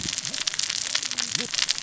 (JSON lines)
{"label": "biophony, cascading saw", "recorder": "SoundTrap 600 or HydroMoth"}